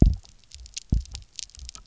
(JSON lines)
{"label": "biophony, double pulse", "recorder": "SoundTrap 300"}